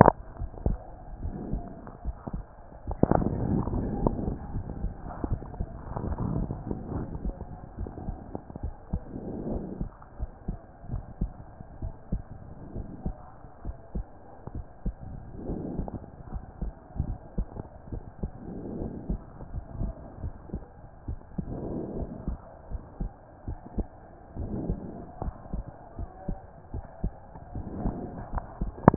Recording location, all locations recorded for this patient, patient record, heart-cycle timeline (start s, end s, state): pulmonary valve (PV)
aortic valve (AV)+pulmonary valve (PV)+tricuspid valve (TV)+mitral valve (MV)
#Age: Child
#Sex: Male
#Height: 131.0 cm
#Weight: 25.3 kg
#Pregnancy status: False
#Murmur: Absent
#Murmur locations: nan
#Most audible location: nan
#Systolic murmur timing: nan
#Systolic murmur shape: nan
#Systolic murmur grading: nan
#Systolic murmur pitch: nan
#Systolic murmur quality: nan
#Diastolic murmur timing: nan
#Diastolic murmur shape: nan
#Diastolic murmur grading: nan
#Diastolic murmur pitch: nan
#Diastolic murmur quality: nan
#Outcome: Abnormal
#Campaign: 2014 screening campaign
0.00	6.94	unannotated
6.94	7.06	S1
7.06	7.24	systole
7.24	7.34	S2
7.34	7.78	diastole
7.78	7.90	S1
7.90	8.06	systole
8.06	8.16	S2
8.16	8.62	diastole
8.62	8.74	S1
8.74	8.92	systole
8.92	9.02	S2
9.02	9.48	diastole
9.48	9.62	S1
9.62	9.80	systole
9.80	9.90	S2
9.90	10.20	diastole
10.20	10.30	S1
10.30	10.48	systole
10.48	10.58	S2
10.58	10.90	diastole
10.90	11.02	S1
11.02	11.20	systole
11.20	11.32	S2
11.32	11.82	diastole
11.82	11.94	S1
11.94	12.12	systole
12.12	12.22	S2
12.22	12.76	diastole
12.76	12.86	S1
12.86	13.04	systole
13.04	13.16	S2
13.16	13.66	diastole
13.66	13.76	S1
13.76	13.94	systole
13.94	14.06	S2
14.06	14.54	diastole
14.54	14.66	S1
14.66	14.84	systole
14.84	14.94	S2
14.94	15.46	diastole
15.46	15.60	S1
15.60	15.76	systole
15.76	15.88	S2
15.88	16.32	diastole
16.32	16.44	S1
16.44	16.62	systole
16.62	16.72	S2
16.72	17.01	diastole
17.01	17.16	S1
17.16	17.36	systole
17.36	17.48	S2
17.48	17.92	diastole
17.92	18.02	S1
18.02	18.22	systole
18.22	18.32	S2
18.32	18.78	diastole
18.78	18.90	S1
18.90	19.08	systole
19.08	19.20	S2
19.20	19.54	diastole
19.54	19.64	S1
19.64	19.80	systole
19.80	19.92	S2
19.92	20.22	diastole
20.22	20.32	S1
20.32	20.52	systole
20.52	20.62	S2
20.62	21.08	diastole
21.08	21.18	S1
21.18	21.38	systole
21.38	21.46	S2
21.46	21.96	diastole
21.96	22.10	S1
22.10	22.26	systole
22.26	22.38	S2
22.38	22.72	diastole
22.72	22.82	S1
22.82	23.00	systole
23.00	23.10	S2
23.10	23.48	diastole
23.48	23.58	S1
23.58	23.76	systole
23.76	23.86	S2
23.86	24.38	diastole
24.38	24.52	S1
24.52	24.68	systole
24.68	24.78	S2
24.78	25.22	diastole
25.22	25.34	S1
25.34	25.54	systole
25.54	25.64	S2
25.64	25.98	diastole
25.98	26.08	S1
26.08	26.28	systole
26.28	26.38	S2
26.38	26.74	diastole
26.74	26.84	S1
26.84	27.02	systole
27.02	27.12	S2
27.12	27.56	diastole
27.56	27.66	S1
27.66	27.84	systole
27.84	27.96	S2
27.96	28.35	diastole
28.35	28.96	unannotated